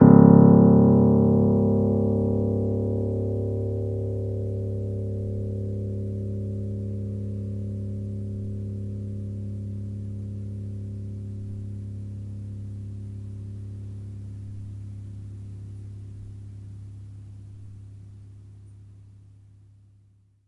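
Low piano key sound slowly fading out. 0:00.0 - 0:20.5

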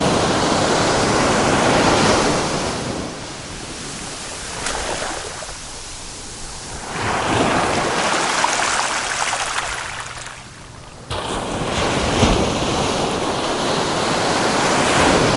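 A wave rolls onto the beach. 0:00.0 - 0:04.3
A small wave splashes onto a beach. 0:04.3 - 0:06.3
Water flowing. 0:04.3 - 0:06.3
A wave splashes onto a beach. 0:06.3 - 0:11.1
A large wave crashes onto a beach. 0:11.1 - 0:15.3

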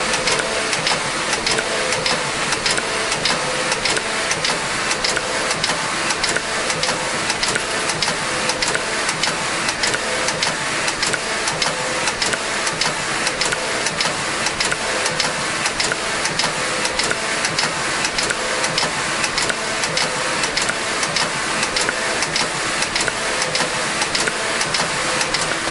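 An industrial sewing machine clicks rhythmically and steadily. 0:00.0 - 0:25.7

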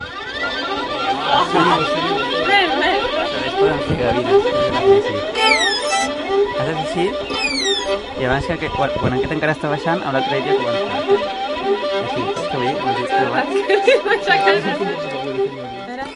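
A person is rapidly playing different sounds on a violin indoors. 0:00.0 - 0:16.1
Two people are talking indoors. 0:01.3 - 0:05.6
A man is speaking indoors. 0:06.7 - 0:07.6
A man is speaking indoors. 0:08.5 - 0:11.4
Two people are speaking indoors. 0:12.5 - 0:13.4
A woman is laughing and talking to a man indoors. 0:13.4 - 0:14.9
Two people are talking indoors in a muffled manner. 0:14.9 - 0:16.2

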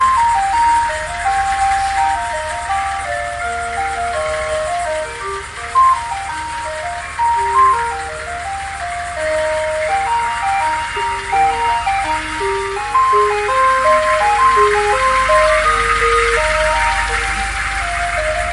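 Rhythmic ice cream truck melody with a constant, slightly noisy engine sound in the background. 0:00.0 - 0:18.5

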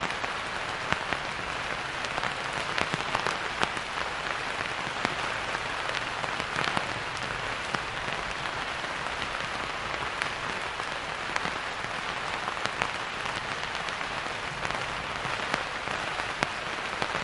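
Consistent rain noises outside. 0:00.0 - 0:17.2

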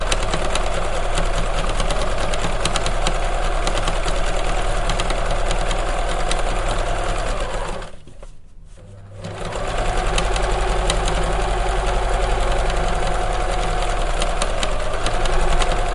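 A sewing machine runs continuously indoors. 0:00.0 - 0:15.9
A sewing machine is turned on and operates. 0:07.9 - 0:15.9

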